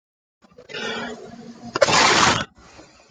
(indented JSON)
{
  "expert_labels": [
    {
      "quality": "poor",
      "cough_type": "unknown",
      "dyspnea": false,
      "wheezing": false,
      "stridor": false,
      "choking": false,
      "congestion": false,
      "nothing": false,
      "severity": "unknown"
    }
  ],
  "age": 35,
  "gender": "male",
  "respiratory_condition": false,
  "fever_muscle_pain": false,
  "status": "symptomatic"
}